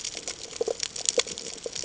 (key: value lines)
label: ambient
recorder: HydroMoth